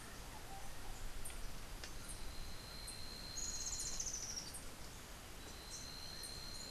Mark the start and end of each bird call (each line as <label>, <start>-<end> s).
Rufous-tailed Hummingbird (Amazilia tzacatl), 3.2-4.5 s